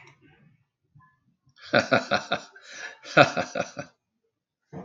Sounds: Laughter